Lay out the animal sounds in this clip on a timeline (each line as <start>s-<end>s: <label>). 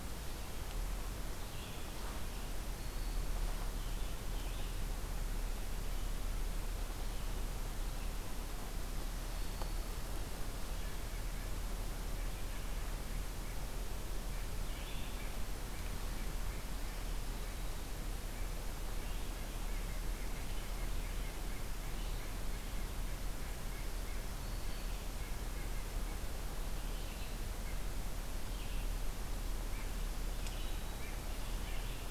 0.0s-5.0s: Red-eyed Vireo (Vireo olivaceus)
2.6s-3.5s: Black-throated Green Warbler (Setophaga virens)
9.2s-10.2s: Black-throated Green Warbler (Setophaga virens)
10.7s-12.5s: White-breasted Nuthatch (Sitta carolinensis)
13.0s-26.1s: White-breasted Nuthatch (Sitta carolinensis)
24.0s-25.1s: Black-throated Green Warbler (Setophaga virens)
26.6s-32.1s: Red-eyed Vireo (Vireo olivaceus)
30.4s-31.2s: Black-throated Green Warbler (Setophaga virens)